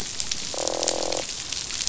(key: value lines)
label: biophony, croak
recorder: SoundTrap 500